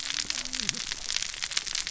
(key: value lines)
label: biophony, cascading saw
recorder: SoundTrap 600 or HydroMoth